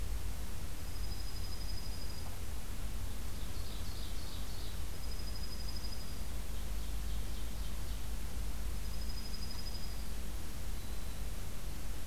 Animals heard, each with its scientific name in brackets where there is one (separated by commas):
Dark-eyed Junco (Junco hyemalis), Ovenbird (Seiurus aurocapilla), Black-throated Green Warbler (Setophaga virens)